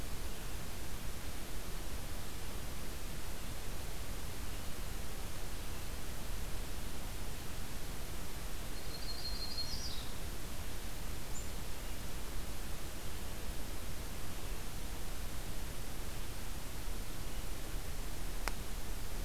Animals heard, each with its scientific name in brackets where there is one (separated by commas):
Yellow-rumped Warbler (Setophaga coronata)